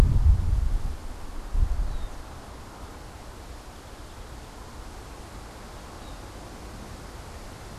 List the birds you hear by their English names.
unidentified bird, Song Sparrow